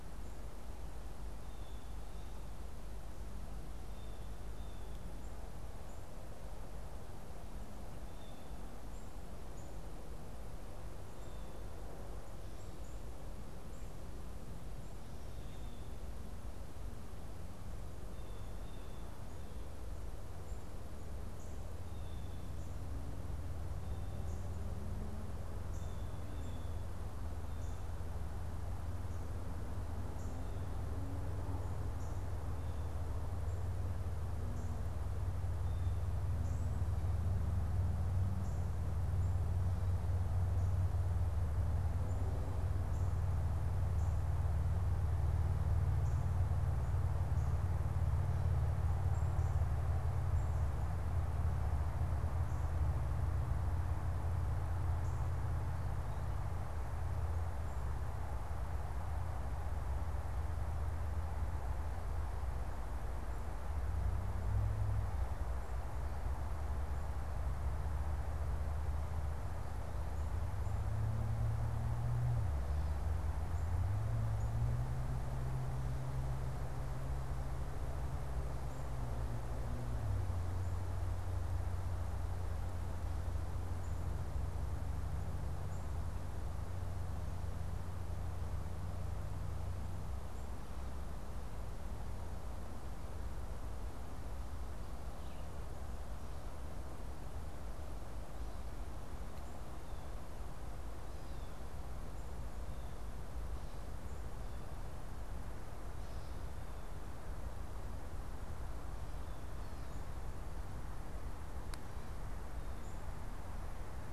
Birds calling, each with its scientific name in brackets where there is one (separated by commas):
Blue Jay (Cyanocitta cristata), Black-capped Chickadee (Poecile atricapillus), Northern Cardinal (Cardinalis cardinalis)